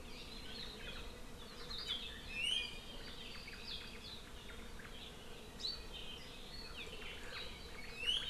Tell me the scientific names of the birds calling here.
Myadestes obscurus